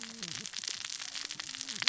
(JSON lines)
{"label": "biophony, cascading saw", "recorder": "SoundTrap 600 or HydroMoth"}